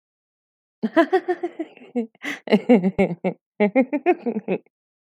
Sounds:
Laughter